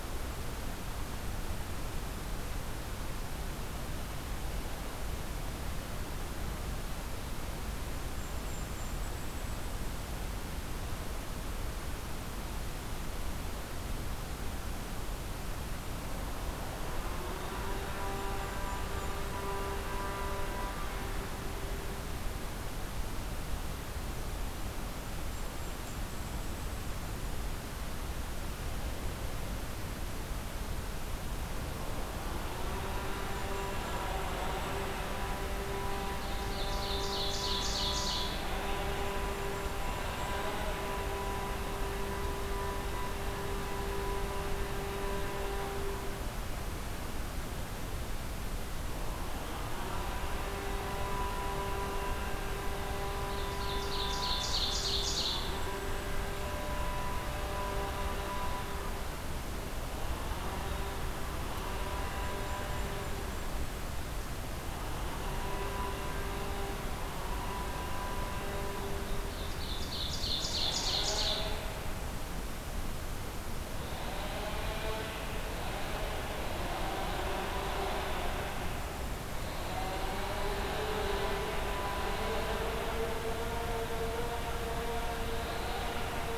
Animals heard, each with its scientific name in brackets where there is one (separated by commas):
Ovenbird (Seiurus aurocapilla), Golden-crowned Kinglet (Regulus satrapa)